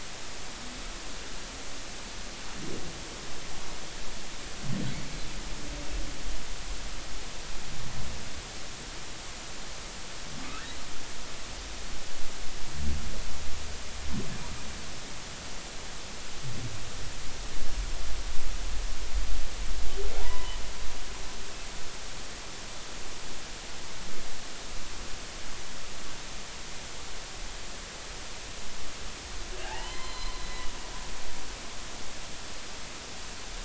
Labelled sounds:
10.4	10.7	humpback whale, 2.4 to 2.7 kHz
20.2	20.6	humpback whale, 0.80 to 3.1 kHz
29.6	30.7	humpback whale, 0.80 to 4.2 kHz

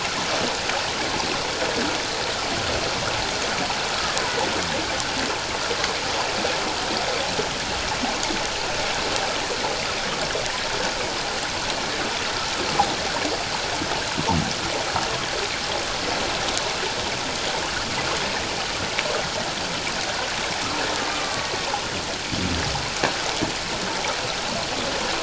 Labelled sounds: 21.1	21.5	killer whale, Bigg's (transient), 1.1 to 1.4 kHz

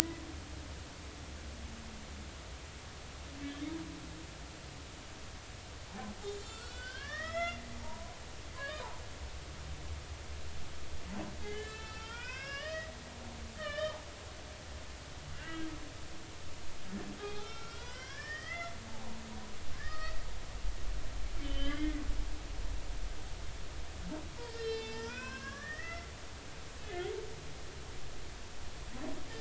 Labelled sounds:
6.3	8.9	humpback whale, 0.86 to 6.2 kHz
11.4	12.9	humpback whale, 0.86 to 5.7 kHz
13.6	14.0	humpback whale, 1.1 to 3.8 kHz
15.3	15.7	humpback whale, 1.5 to 3.0 kHz
17.2	18.7	humpback whale, 0.80 to 5.2 kHz
19.7	20.2	humpback whale, 1.1 to 4.6 kHz
21.4	22.0	humpback whale, 1.4 to 3.4 kHz
24.4	26.1	humpback whale, 0.83 to 5.6 kHz
26.8	27.0	humpback whale, 2.5 to 2.6 kHz

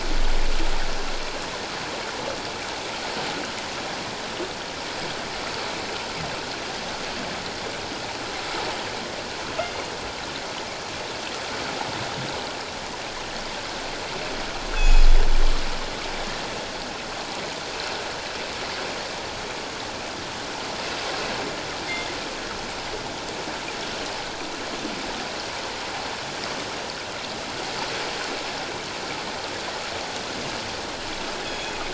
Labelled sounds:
14.7	15.1	killer whale, northern resident, G clan, call N24ii, 2.4 to 6.9 kHz
31.4	31.7	killer whale, northern resident, G clan, call N24ii, 3.3 to 3.4 kHz

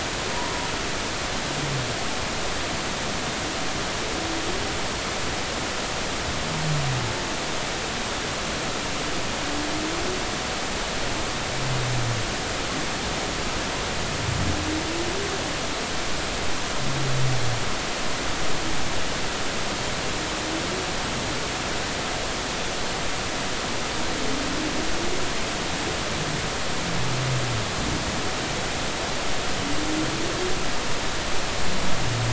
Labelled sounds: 0.3	0.7	humpback whale, 0.93 to 1.1 kHz

